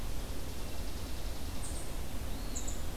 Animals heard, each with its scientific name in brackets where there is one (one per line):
Chipping Sparrow (Spizella passerina)
unidentified call
Eastern Wood-Pewee (Contopus virens)